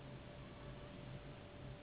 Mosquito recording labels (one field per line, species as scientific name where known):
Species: Anopheles gambiae s.s.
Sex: female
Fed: unfed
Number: one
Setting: insect culture